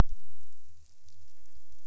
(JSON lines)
{"label": "biophony", "recorder": "SoundTrap 300"}